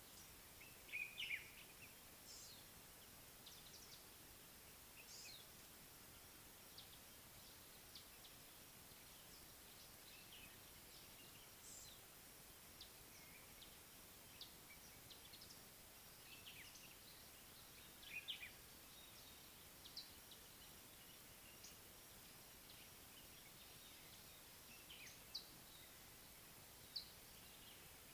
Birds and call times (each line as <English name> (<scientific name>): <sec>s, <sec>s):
Common Bulbul (Pycnonotus barbatus): 1.2s, 18.1s
Collared Sunbird (Hedydipna collaris): 2.3s, 11.7s
Mariqua Sunbird (Cinnyris mariquensis): 26.9s